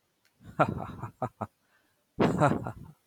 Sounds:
Laughter